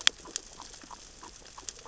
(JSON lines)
{"label": "biophony, grazing", "recorder": "SoundTrap 600 or HydroMoth"}